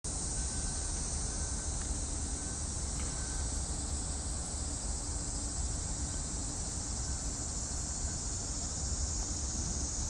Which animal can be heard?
Platypleura kaempferi, a cicada